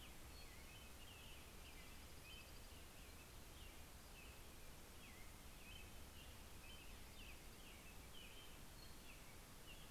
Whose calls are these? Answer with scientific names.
Myadestes townsendi, Turdus migratorius, Junco hyemalis